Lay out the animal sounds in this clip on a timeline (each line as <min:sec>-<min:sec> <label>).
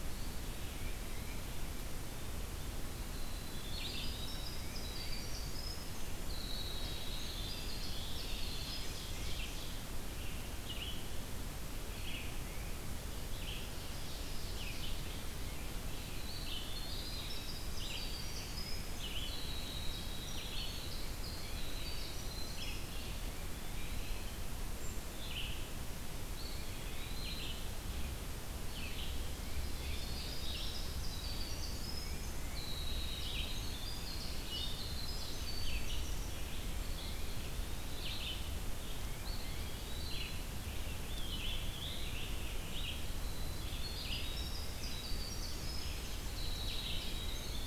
0:00.6-0:01.6 Tufted Titmouse (Baeolophus bicolor)
0:03.0-0:09.2 Winter Wren (Troglodytes hiemalis)
0:03.6-0:47.7 Red-eyed Vireo (Vireo olivaceus)
0:08.1-0:09.9 Ovenbird (Seiurus aurocapilla)
0:13.3-0:15.1 Ovenbird (Seiurus aurocapilla)
0:15.8-0:23.3 Winter Wren (Troglodytes hiemalis)
0:22.8-0:24.5 Eastern Wood-Pewee (Contopus virens)
0:26.2-0:27.7 Eastern Wood-Pewee (Contopus virens)
0:28.6-0:29.3 Eastern Wood-Pewee (Contopus virens)
0:29.3-0:36.6 Winter Wren (Troglodytes hiemalis)
0:32.0-0:32.7 Tufted Titmouse (Baeolophus bicolor)
0:39.1-0:40.5 Eastern Wood-Pewee (Contopus virens)
0:40.9-0:43.2 Scarlet Tanager (Piranga olivacea)
0:42.8-0:47.7 Winter Wren (Troglodytes hiemalis)